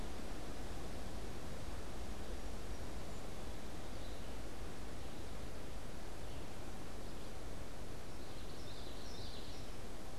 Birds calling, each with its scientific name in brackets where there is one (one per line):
Song Sparrow (Melospiza melodia)
Common Yellowthroat (Geothlypis trichas)
Red-eyed Vireo (Vireo olivaceus)